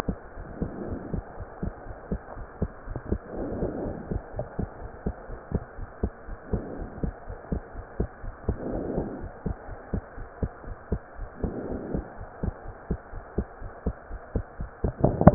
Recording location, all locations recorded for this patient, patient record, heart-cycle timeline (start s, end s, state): pulmonary valve (PV)
aortic valve (AV)+pulmonary valve (PV)+tricuspid valve (TV)+mitral valve (MV)
#Age: Child
#Sex: Female
#Height: 131.0 cm
#Weight: 32.4 kg
#Pregnancy status: False
#Murmur: Absent
#Murmur locations: nan
#Most audible location: nan
#Systolic murmur timing: nan
#Systolic murmur shape: nan
#Systolic murmur grading: nan
#Systolic murmur pitch: nan
#Systolic murmur quality: nan
#Diastolic murmur timing: nan
#Diastolic murmur shape: nan
#Diastolic murmur grading: nan
#Diastolic murmur pitch: nan
#Diastolic murmur quality: nan
#Outcome: Normal
#Campaign: 2015 screening campaign
0.00	0.34	unannotated
0.34	0.48	S1
0.48	0.58	systole
0.58	0.72	S2
0.72	0.88	diastole
0.88	1.02	S1
1.02	1.12	systole
1.12	1.24	S2
1.24	1.37	diastole
1.37	1.46	S1
1.46	1.62	systole
1.62	1.74	S2
1.74	1.87	diastole
1.87	1.96	S1
1.96	2.10	systole
2.10	2.20	S2
2.20	2.36	diastole
2.36	2.46	S1
2.46	2.60	systole
2.60	2.72	S2
2.72	2.87	diastole
2.87	3.02	S1
3.02	3.10	systole
3.10	3.20	S2
3.20	3.35	diastole
3.35	3.45	S1
3.45	3.60	systole
3.60	3.72	S2
3.72	3.83	diastole
3.83	3.94	S1
3.94	4.11	systole
4.11	4.22	S2
4.22	4.37	diastole
4.37	4.47	S1
4.47	4.57	systole
4.57	4.68	S2
4.68	4.81	diastole
4.81	4.89	S1
4.89	5.04	systole
5.04	5.16	S2
5.16	5.30	diastole
5.30	5.38	S1
5.38	5.52	systole
5.52	5.62	S2
5.62	5.78	diastole
5.78	5.88	S1
5.88	6.04	systole
6.04	6.12	S2
6.12	6.28	diastole
6.28	6.38	S1
6.38	6.52	systole
6.52	6.68	S2
6.68	6.80	diastole
6.80	6.88	S1
6.88	7.02	systole
7.02	7.14	S2
7.14	7.28	diastole
7.28	7.36	S1
7.36	7.50	systole
7.50	7.62	S2
7.62	7.74	diastole
7.74	7.84	S1
7.84	7.98	systole
7.98	8.10	S2
8.10	8.24	diastole
8.24	8.34	S1
8.34	8.48	systole
8.48	8.60	S2
8.60	8.66	diastole
8.66	8.80	S1
8.80	8.94	systole
8.94	9.10	S2
9.10	9.22	diastole
9.22	9.32	S1
9.32	9.46	systole
9.46	9.58	S2
9.58	9.70	diastole
9.70	9.78	S1
9.78	9.94	systole
9.94	10.04	S2
10.04	10.18	diastole
10.18	10.28	S1
10.28	10.42	systole
10.42	10.52	S2
10.52	10.68	diastole
10.68	10.78	S1
10.78	10.92	systole
10.92	11.02	S2
11.02	11.18	diastole
11.18	11.30	S1
11.30	11.42	systole
11.42	11.56	S2
11.56	11.70	diastole
11.70	11.80	S1
11.80	11.92	systole
11.92	12.06	S2
12.06	12.20	diastole
12.20	12.28	S1
12.28	12.44	systole
12.44	12.56	S2
12.56	12.68	diastole
12.68	12.76	S1
12.76	12.88	systole
12.88	13.00	S2
13.00	13.14	diastole
13.14	13.24	S1
13.24	13.36	systole
13.36	13.48	S2
13.48	13.62	diastole
13.62	13.72	S1
13.72	13.84	systole
13.84	13.96	S2
13.96	14.10	diastole
14.10	14.22	S1
14.22	14.34	systole
14.34	14.48	S2
14.48	14.60	diastole
14.60	14.70	S1
14.70	15.34	unannotated